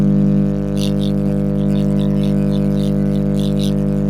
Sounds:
Sniff